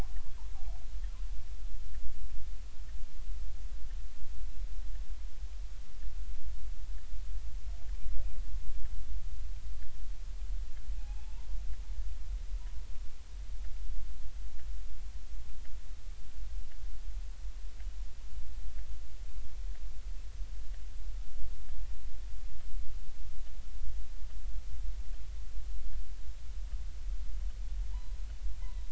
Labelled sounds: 11.0	11.5	killer whale, northern resident, G clan, 0.80 to 1.1 kHz
27.9	28.2	killer whale, northern resident, G clan, 0.80 to 1.1 kHz
28.6	28.9	killer whale, northern resident, G clan, 0.90 to 4.0 kHz

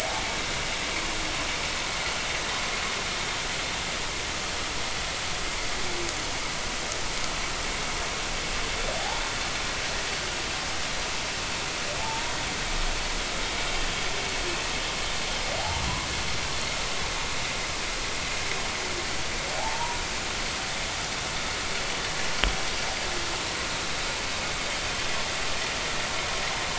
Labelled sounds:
12.0	12.4	humpback whale, 0.80 to 1.0 kHz
19.6	20.0	humpback whale, 0.80 to 1.1 kHz

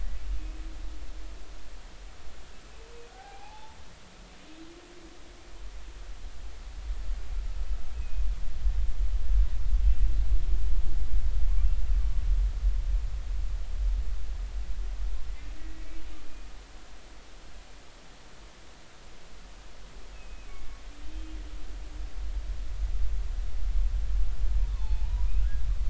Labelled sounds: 3.1	3.8	humpback whale, 0.80 to 1.7 kHz
7.9	8.2	humpback whale, 2.4 to 2.6 kHz
15.6	15.9	humpback whale, 1.9 to 2.0 kHz
20.1	20.5	humpback whale, 2.4 to 2.7 kHz
21.0	21.3	humpback whale, 3.1 to 3.2 kHz
24.8	25.3	humpback whale, 0.80 to 1.0 kHz

